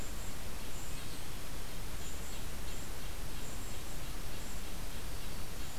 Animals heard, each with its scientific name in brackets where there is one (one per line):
Red-breasted Nuthatch (Sitta canadensis)
Golden-crowned Kinglet (Regulus satrapa)